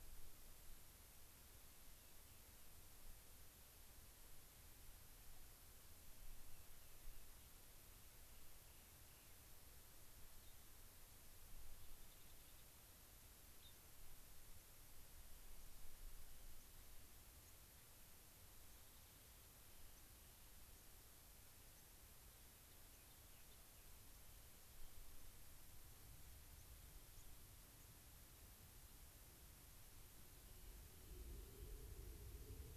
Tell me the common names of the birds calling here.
Rock Wren, Gray-crowned Rosy-Finch, unidentified bird, White-crowned Sparrow